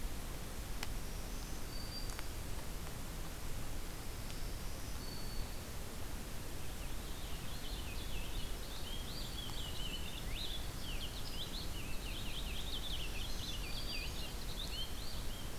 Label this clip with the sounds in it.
Black-throated Green Warbler, Purple Finch, Winter Wren